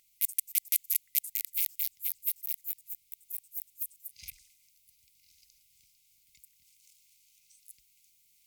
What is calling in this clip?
Poecilimon ornatus, an orthopteran